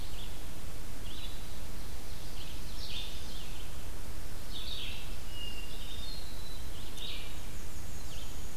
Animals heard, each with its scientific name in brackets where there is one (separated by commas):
Black-capped Chickadee (Poecile atricapillus), Ovenbird (Seiurus aurocapilla), Hermit Thrush (Catharus guttatus), Red-eyed Vireo (Vireo olivaceus)